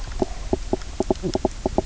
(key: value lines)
label: biophony, knock croak
recorder: SoundTrap 300